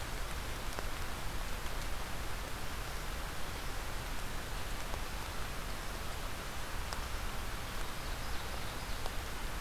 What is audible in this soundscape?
Ovenbird